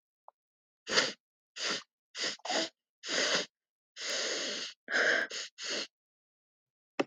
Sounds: Sniff